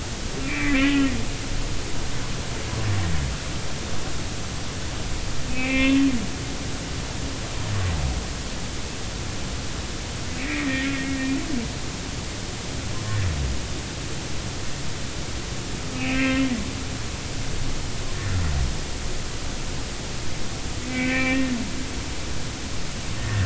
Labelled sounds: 0.4	1.1	humpback whale, 1.8 to 2.9 kHz
5.5	6.0	humpback whale, 1.0 to 2.8 kHz
10.3	11.3	humpback whale, 1.8 to 2.7 kHz
16.0	16.5	humpback whale, 1.3 to 2.9 kHz
20.9	21.5	humpback whale, 1.8 to 2.7 kHz
23.2	23.4	humpback whale, 1.7 to 1.9 kHz

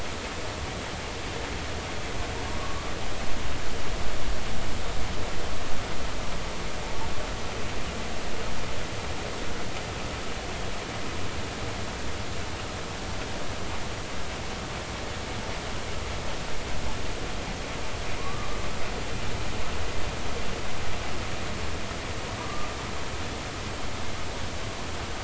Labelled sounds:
2.6	2.9	humpback whale, 1.1 to 1.2 kHz
18.2	18.5	humpback whale, 0.93 to 1.2 kHz
22.4	22.7	humpback whale, 1.1 to 1.2 kHz

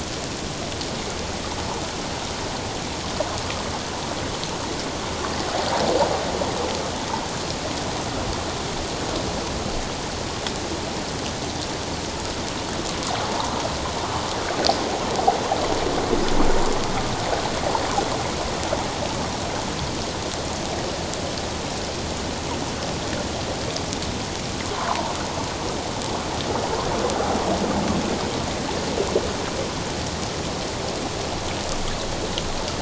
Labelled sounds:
13.2	13.5	water noise, 0.81 to 1.2 kHz
24.9	25.1	water noise, 0.78 to 1.6 kHz

